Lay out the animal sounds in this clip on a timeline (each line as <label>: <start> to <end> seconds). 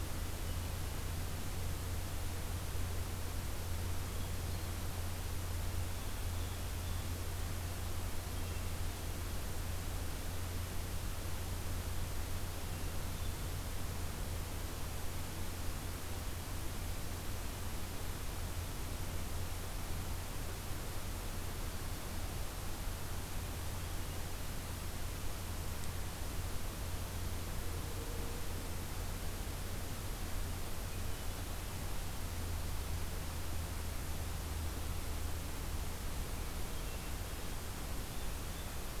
Hermit Thrush (Catharus guttatus): 4.0 to 4.9 seconds
Blue Jay (Cyanocitta cristata): 5.8 to 7.2 seconds
Hermit Thrush (Catharus guttatus): 7.9 to 8.9 seconds
Hermit Thrush (Catharus guttatus): 12.6 to 13.8 seconds
Hermit Thrush (Catharus guttatus): 36.2 to 37.7 seconds
Blue Jay (Cyanocitta cristata): 37.9 to 38.9 seconds